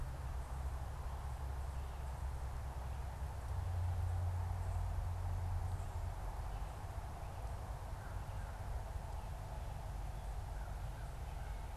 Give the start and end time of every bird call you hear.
[7.96, 11.76] American Crow (Corvus brachyrhynchos)

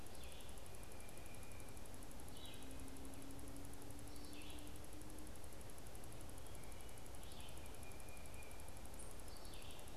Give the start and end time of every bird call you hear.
[0.00, 9.90] Red-eyed Vireo (Vireo olivaceus)
[7.50, 8.70] Tufted Titmouse (Baeolophus bicolor)
[8.80, 9.20] unidentified bird

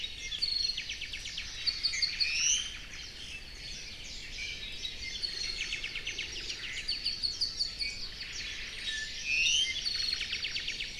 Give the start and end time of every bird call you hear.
[0.33, 2.33] Apapane (Himatione sanguinea)
[1.83, 2.73] Iiwi (Drepanis coccinea)
[2.33, 3.13] Omao (Myadestes obscurus)
[3.23, 3.83] Apapane (Himatione sanguinea)
[4.33, 8.03] Apapane (Himatione sanguinea)
[6.53, 6.93] Omao (Myadestes obscurus)
[8.13, 8.93] Omao (Myadestes obscurus)
[8.73, 9.73] Iiwi (Drepanis coccinea)
[9.83, 10.63] Omao (Myadestes obscurus)
[9.83, 10.93] Apapane (Himatione sanguinea)

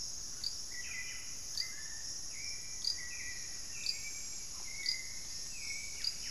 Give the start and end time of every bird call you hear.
[0.00, 6.30] Hauxwell's Thrush (Turdus hauxwelli)
[0.59, 6.30] Buff-breasted Wren (Cantorchilus leucotis)
[1.59, 4.09] Black-faced Antthrush (Formicarius analis)

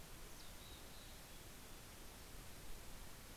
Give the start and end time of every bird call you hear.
[0.10, 1.90] Mountain Chickadee (Poecile gambeli)

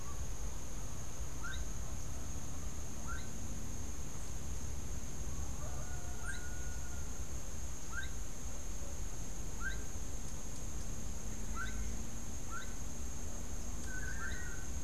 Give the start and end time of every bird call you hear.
[0.00, 12.79] Gray-headed Chachalaca (Ortalis cinereiceps)
[6.19, 6.69] Rufous-capped Warbler (Basileuterus rufifrons)
[13.79, 14.79] Long-tailed Manakin (Chiroxiphia linearis)

